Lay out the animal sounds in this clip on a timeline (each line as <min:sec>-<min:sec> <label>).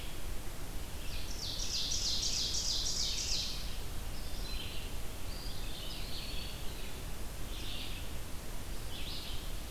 0:00.0-0:05.0 Red-eyed Vireo (Vireo olivaceus)
0:01.3-0:03.6 Ovenbird (Seiurus aurocapilla)
0:03.8-0:04.9 unidentified call
0:05.1-0:06.6 Eastern Wood-Pewee (Contopus virens)
0:05.8-0:09.7 Red-eyed Vireo (Vireo olivaceus)